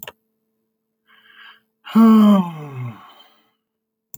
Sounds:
Sigh